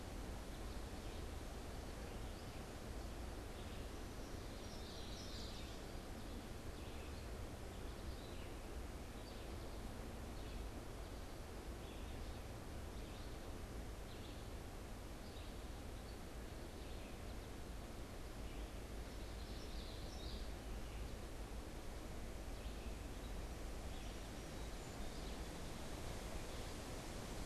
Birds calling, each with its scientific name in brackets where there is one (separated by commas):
Red-eyed Vireo (Vireo olivaceus), Common Yellowthroat (Geothlypis trichas)